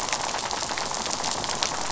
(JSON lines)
{"label": "biophony, rattle", "recorder": "SoundTrap 500"}